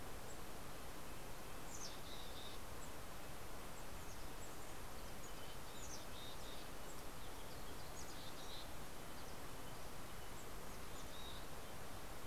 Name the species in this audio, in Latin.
Sitta canadensis, Poecile gambeli